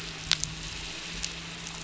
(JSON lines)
{"label": "anthrophony, boat engine", "recorder": "SoundTrap 500"}